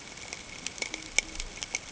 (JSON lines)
{"label": "ambient", "recorder": "HydroMoth"}